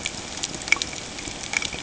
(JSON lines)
{"label": "ambient", "recorder": "HydroMoth"}